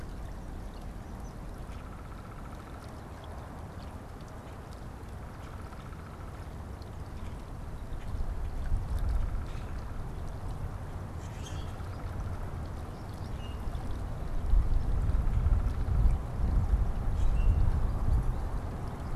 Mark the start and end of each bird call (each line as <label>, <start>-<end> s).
Downy Woodpecker (Dryobates pubescens), 0.0-3.3 s
Downy Woodpecker (Dryobates pubescens), 5.0-6.5 s
Downy Woodpecker (Dryobates pubescens), 8.7-10.1 s
Common Grackle (Quiscalus quiscula), 9.3-9.8 s
Common Grackle (Quiscalus quiscula), 11.0-11.8 s
Common Grackle (Quiscalus quiscula), 13.2-13.7 s
unidentified bird, 14.7-15.9 s
Common Grackle (Quiscalus quiscula), 17.2-17.7 s